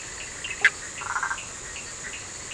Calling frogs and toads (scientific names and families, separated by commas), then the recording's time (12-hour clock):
Boana bischoffi (Hylidae), Boana prasina (Hylidae), Sphaenorhynchus surdus (Hylidae)
11:00pm